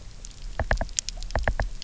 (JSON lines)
{"label": "biophony, knock", "recorder": "SoundTrap 300"}